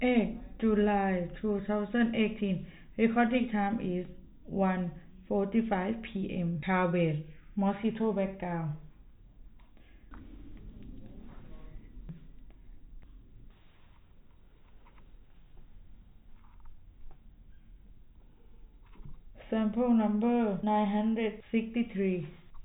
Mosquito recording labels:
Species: no mosquito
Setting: cup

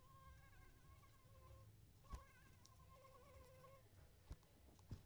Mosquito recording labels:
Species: Anopheles arabiensis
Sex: female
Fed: unfed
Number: one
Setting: cup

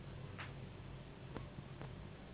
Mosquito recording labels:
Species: Anopheles gambiae s.s.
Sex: female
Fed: unfed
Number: one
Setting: insect culture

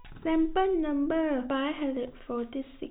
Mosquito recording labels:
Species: no mosquito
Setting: cup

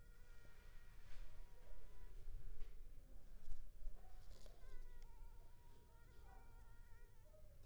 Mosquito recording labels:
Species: Culex pipiens complex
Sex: female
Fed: unfed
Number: one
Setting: cup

